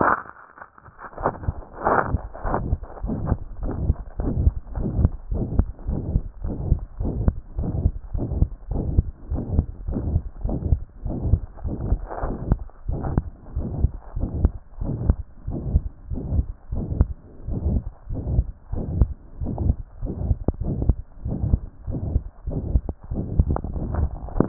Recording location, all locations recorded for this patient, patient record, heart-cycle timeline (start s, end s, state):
tricuspid valve (TV)
pulmonary valve (PV)+tricuspid valve (TV)+mitral valve (MV)
#Age: Child
#Sex: Male
#Height: 104.0 cm
#Weight: 17.5 kg
#Pregnancy status: False
#Murmur: Present
#Murmur locations: mitral valve (MV)+pulmonary valve (PV)+tricuspid valve (TV)
#Most audible location: pulmonary valve (PV)
#Systolic murmur timing: Holosystolic
#Systolic murmur shape: Plateau
#Systolic murmur grading: I/VI
#Systolic murmur pitch: Medium
#Systolic murmur quality: Harsh
#Diastolic murmur timing: nan
#Diastolic murmur shape: nan
#Diastolic murmur grading: nan
#Diastolic murmur pitch: nan
#Diastolic murmur quality: nan
#Outcome: Abnormal
#Campaign: 2014 screening campaign
0.00	0.12	S2
0.12	0.50	diastole
0.50	0.62	S1
0.62	0.74	systole
0.74	0.84	S2
0.84	1.22	diastole
1.22	1.34	S1
1.34	1.44	systole
1.44	1.56	S2
1.56	1.88	diastole
1.88	1.98	S1
1.98	2.06	systole
2.06	2.22	S2
2.22	2.50	diastole
2.50	2.64	S1
2.64	2.70	systole
2.70	2.78	S2
2.78	3.04	diastole
3.04	3.18	S1
3.18	3.24	systole
3.24	3.38	S2
3.38	3.62	diastole
3.62	3.74	S1
3.74	3.80	systole
3.80	3.94	S2
3.94	4.24	diastole
4.24	4.36	S1
4.36	4.38	systole
4.38	4.52	S2
4.52	4.76	diastole
4.76	4.92	S1
4.92	4.96	systole
4.96	5.12	S2
5.12	5.36	diastole
5.36	5.48	S1
5.48	5.52	systole
5.52	5.64	S2
5.64	5.88	diastole
5.88	6.04	S1
6.04	6.10	systole
6.10	6.24	S2
6.24	6.48	diastole
6.48	6.58	S1
6.58	6.64	systole
6.64	6.76	S2
6.76	7.00	diastole
7.00	7.14	S1
7.14	7.18	systole
7.18	7.32	S2
7.32	7.58	diastole
7.58	7.72	S1
7.72	7.76	systole
7.76	7.90	S2
7.90	8.14	diastole
8.14	8.30	S1
8.30	8.32	systole
8.32	8.46	S2
8.46	8.70	diastole
8.70	8.86	S1
8.86	8.90	systole
8.90	9.06	S2
9.06	9.30	diastole
9.30	9.46	S1
9.46	9.52	systole
9.52	9.66	S2
9.66	9.90	diastole
9.90	10.04	S1
10.04	10.06	systole
10.06	10.20	S2
10.20	10.44	diastole
10.44	10.60	S1
10.60	10.66	systole
10.66	10.80	S2
10.80	11.06	diastole
11.06	11.16	S1
11.16	11.24	systole
11.24	11.40	S2
11.40	11.66	diastole
11.66	11.80	S1
11.80	11.86	systole
11.86	12.00	S2
12.00	12.28	diastole
12.28	12.40	S1
12.40	12.50	systole
12.50	12.60	S2
12.60	12.88	diastole
12.88	13.00	S1
13.00	13.12	systole
13.12	13.24	S2
13.24	13.56	diastole
13.56	13.70	S1
13.70	13.78	systole
13.78	13.94	S2
13.94	14.22	diastole
14.22	14.32	S1
14.32	14.36	systole
14.36	14.52	S2
14.52	14.82	diastole
14.82	14.98	S1
14.98	15.02	systole
15.02	15.18	S2
15.18	15.52	diastole
15.52	15.64	S1
15.64	15.70	systole
15.70	15.84	S2
15.84	16.12	diastole
16.12	16.24	S1
16.24	16.32	systole
16.32	16.46	S2
16.46	16.76	diastole
16.76	16.90	S1
16.90	16.98	systole
16.98	17.14	S2
17.14	17.48	diastole
17.48	17.64	S1
17.64	17.66	systole
17.66	17.82	S2
17.82	18.12	diastole
18.12	18.24	S1
18.24	18.30	systole
18.30	18.46	S2
18.46	18.78	diastole
18.78	18.90	S1
18.90	18.94	systole
18.94	19.10	S2
19.10	19.42	diastole
19.42	19.56	S1
19.56	19.62	systole
19.62	19.76	S2
19.76	20.04	diastole
20.04	20.18	S1
20.18	20.24	systole
20.24	20.38	S2
20.38	20.66	diastole
20.66	20.80	S1
20.80	20.86	systole
20.86	21.00	S2
21.00	21.26	diastole
21.26	21.40	S1
21.40	21.44	systole
21.44	21.60	S2
21.60	21.90	diastole
21.90	22.04	S1
22.04	22.10	systole
22.10	22.26	S2
22.26	22.56	diastole
22.56	22.66	S1
22.66	22.72	systole
22.72	22.86	S2
22.86	23.16	diastole
23.16	23.28	S1
23.28	23.34	systole
23.34	23.46	S2
23.46	23.72	diastole
23.72	23.84	S1
23.84	23.94	systole
23.94	24.10	S2
24.10	24.38	diastole
24.38	24.48	S1